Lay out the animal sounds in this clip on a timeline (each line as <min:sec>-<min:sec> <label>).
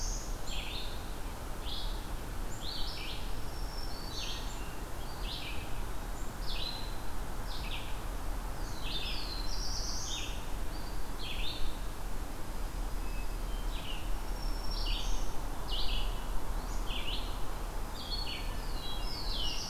0:00.0-0:19.7 Red-eyed Vireo (Vireo olivaceus)
0:03.2-0:04.5 Black-throated Green Warbler (Setophaga virens)
0:08.4-0:10.3 Black-throated Blue Warbler (Setophaga caerulescens)
0:12.9-0:13.9 Hermit Thrush (Catharus guttatus)
0:14.1-0:15.4 Black-throated Green Warbler (Setophaga virens)
0:16.4-0:17.4 Eastern Wood-Pewee (Contopus virens)
0:17.9-0:19.2 Hermit Thrush (Catharus guttatus)
0:18.6-0:19.7 Black-throated Blue Warbler (Setophaga caerulescens)